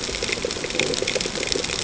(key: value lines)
label: ambient
recorder: HydroMoth